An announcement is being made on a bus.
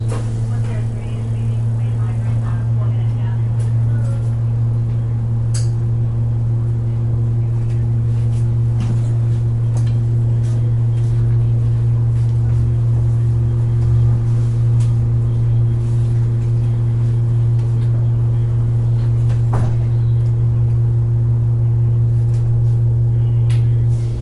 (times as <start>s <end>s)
0.5s 5.0s